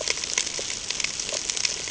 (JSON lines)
{"label": "ambient", "recorder": "HydroMoth"}